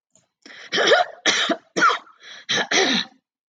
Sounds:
Throat clearing